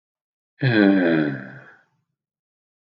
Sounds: Sigh